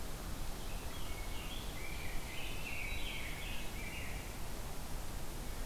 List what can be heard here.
Rose-breasted Grosbeak